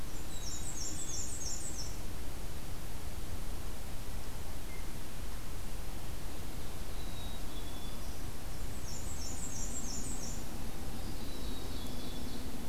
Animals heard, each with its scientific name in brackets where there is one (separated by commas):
Ovenbird (Seiurus aurocapilla), Blue Jay (Cyanocitta cristata), Black-and-white Warbler (Mniotilta varia), Black-throated Green Warbler (Setophaga virens), Black-capped Chickadee (Poecile atricapillus)